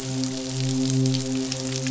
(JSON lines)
{"label": "biophony, midshipman", "recorder": "SoundTrap 500"}